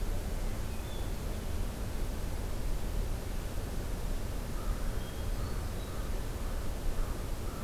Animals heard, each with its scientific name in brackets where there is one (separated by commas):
American Crow (Corvus brachyrhynchos), Hermit Thrush (Catharus guttatus)